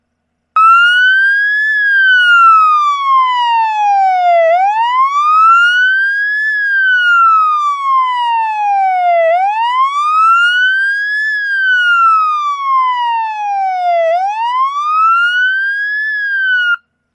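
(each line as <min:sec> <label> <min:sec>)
0:00.6 A loud, clear car siren repeats. 0:16.8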